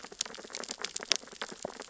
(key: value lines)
label: biophony, sea urchins (Echinidae)
recorder: SoundTrap 600 or HydroMoth